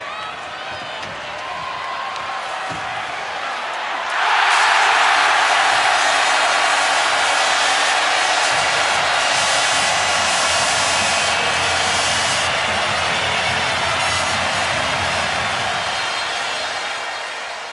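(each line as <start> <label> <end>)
0.0 A crowd cheers moderately. 4.1
4.1 The crowd cheers happily and fades away slowly. 17.7
4.6 Tooting sounds. 17.7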